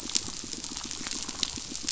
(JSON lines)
{"label": "biophony, pulse", "recorder": "SoundTrap 500"}